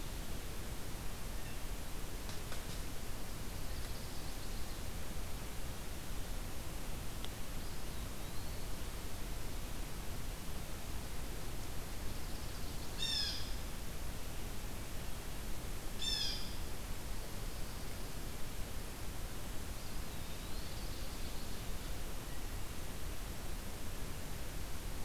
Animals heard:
Blue Jay (Cyanocitta cristata), Chestnut-sided Warbler (Setophaga pensylvanica), Eastern Wood-Pewee (Contopus virens), Ovenbird (Seiurus aurocapilla)

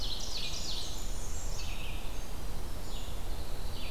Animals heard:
Blackburnian Warbler (Setophaga fusca), Red-eyed Vireo (Vireo olivaceus), Winter Wren (Troglodytes hiemalis), Ovenbird (Seiurus aurocapilla)

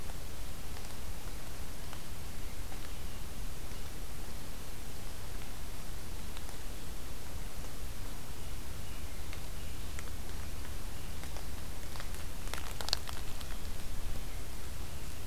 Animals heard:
American Robin (Turdus migratorius)

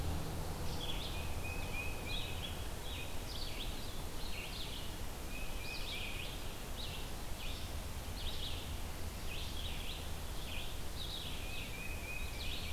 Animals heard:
Red-eyed Vireo (Vireo olivaceus), Tufted Titmouse (Baeolophus bicolor)

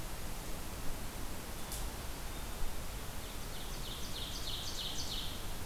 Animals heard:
Ovenbird (Seiurus aurocapilla)

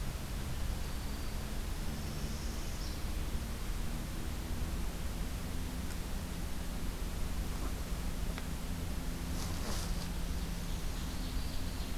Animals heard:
Northern Parula (Setophaga americana), Ovenbird (Seiurus aurocapilla), Black-throated Green Warbler (Setophaga virens)

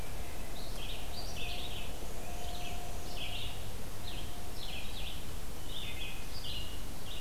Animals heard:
Black-and-white Warbler (Mniotilta varia), Red-eyed Vireo (Vireo olivaceus)

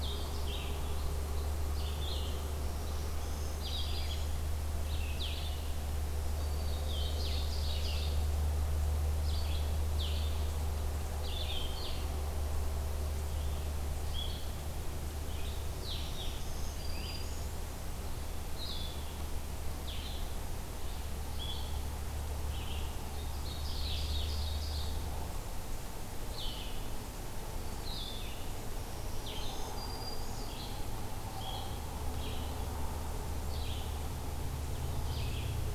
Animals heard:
Black-throated Green Warbler (Setophaga virens), Red-eyed Vireo (Vireo olivaceus), Ovenbird (Seiurus aurocapilla)

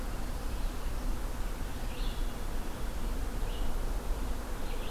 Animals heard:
Red-eyed Vireo (Vireo olivaceus)

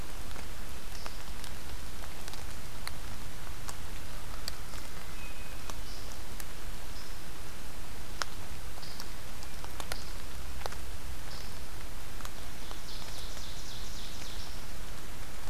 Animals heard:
Hermit Thrush (Catharus guttatus), Ovenbird (Seiurus aurocapilla)

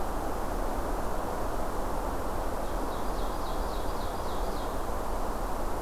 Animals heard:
Ovenbird (Seiurus aurocapilla)

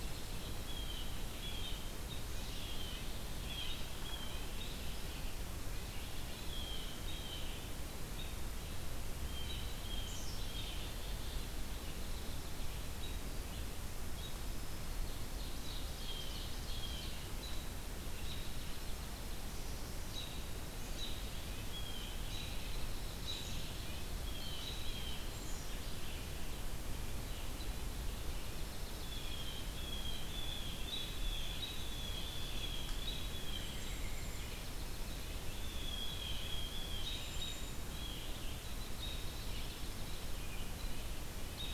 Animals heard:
Dark-eyed Junco (Junco hyemalis), Ovenbird (Seiurus aurocapilla), Red-breasted Nuthatch (Sitta canadensis), Red-eyed Vireo (Vireo olivaceus), Blue Jay (Cyanocitta cristata), Black-capped Chickadee (Poecile atricapillus)

